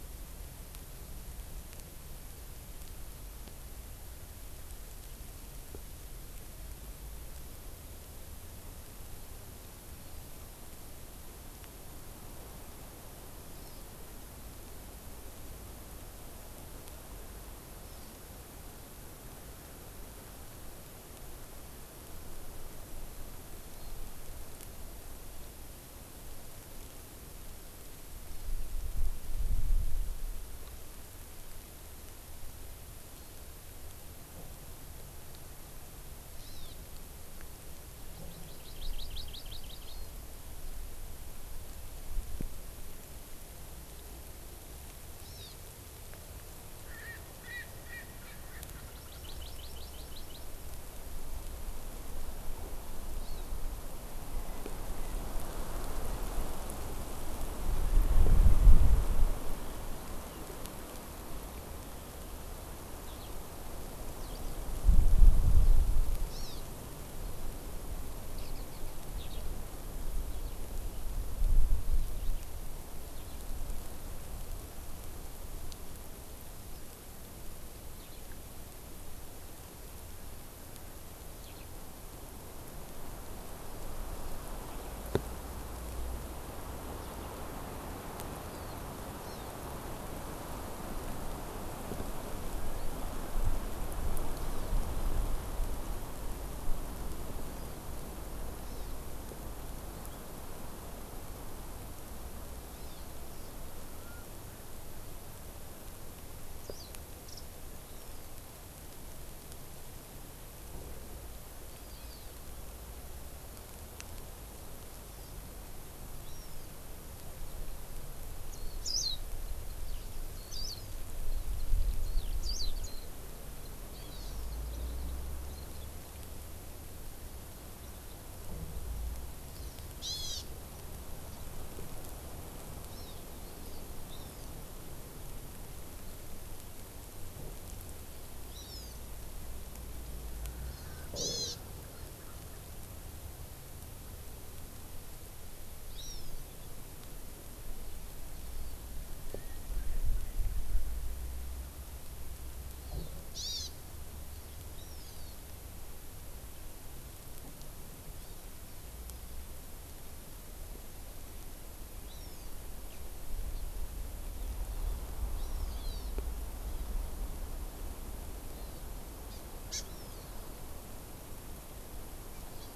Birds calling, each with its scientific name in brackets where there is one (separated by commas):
Eurasian Skylark (Alauda arvensis), Hawaiian Hawk (Buteo solitarius), Warbling White-eye (Zosterops japonicus), Erckel's Francolin (Pternistis erckelii), Hawaii Amakihi (Chlorodrepanis virens)